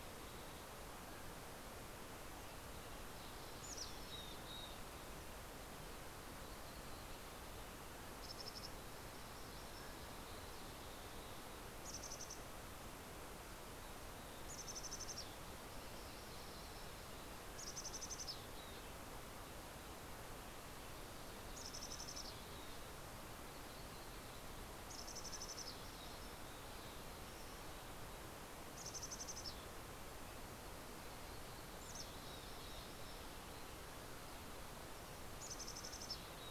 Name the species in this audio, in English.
Mountain Chickadee, Mountain Quail